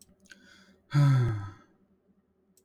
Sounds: Sigh